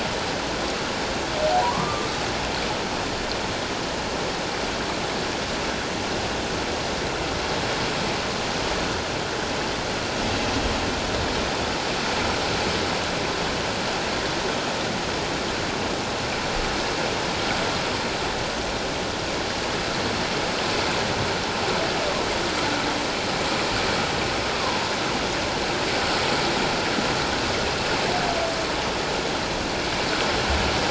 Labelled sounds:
1.6	2.1	humpback whale, 0.91 to 1.2 kHz
24.5	24.8	humpback whale, 0.91 to 1.2 kHz

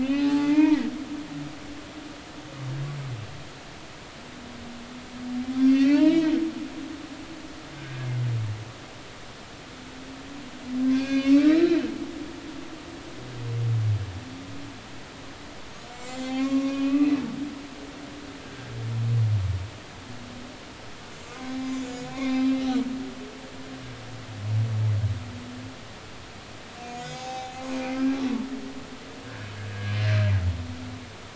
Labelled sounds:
0.0	0.9	humpback whale, 0.80 to 5.1 kHz
5.6	6.3	humpback whale, 0.86 to 5.0 kHz
10.9	11.8	humpback whale, 1.1 to 6.1 kHz
15.9	17.1	humpback whale, 1.0 to 7.5 kHz
18.4	18.7	humpback whale, 1.6 to 1.7 kHz
21.1	22.7	humpback whale, 0.80 to 7.4 kHz
26.8	27.5	humpback whale, 0.80 to 7.5 kHz
29.2	30.0	humpback whale, 1.5 to 1.8 kHz

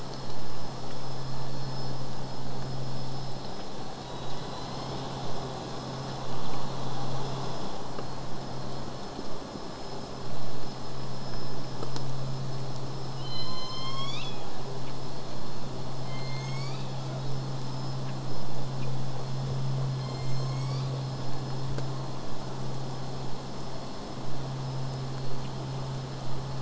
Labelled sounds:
4.0	5.5	killer whale, southern resident, J pod, call S01, 1.5 to 6.9 kHz
13.2	14.9	killer whale, southern resident, J pod, call S01, 0.15 to 8.0 kHz
16.0	17.4	killer whale, southern resident, J pod, call S01, 0.15 to 8.0 kHz

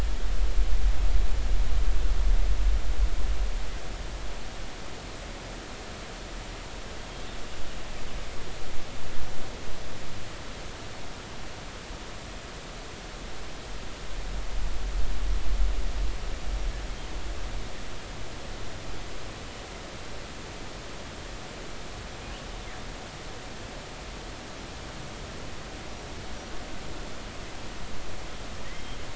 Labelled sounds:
7.0	7.2	killer whale, northern resident, 3.2 to 3.3 kHz
28.6	29.0	killer whale, northern resident, 1.8 to 3.3 kHz

